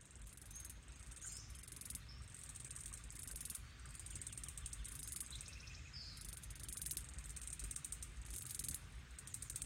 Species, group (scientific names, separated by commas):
Platypedia minor, Cicadidae